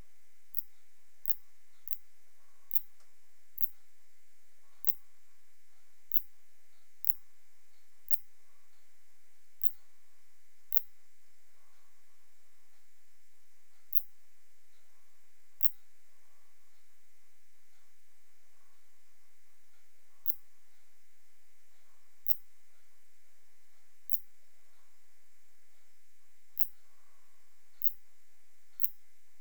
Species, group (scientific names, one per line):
Phaneroptera nana
Orthoptera